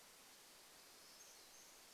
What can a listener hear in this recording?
warbler song